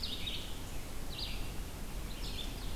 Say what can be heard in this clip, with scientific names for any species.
Vireo olivaceus, Seiurus aurocapilla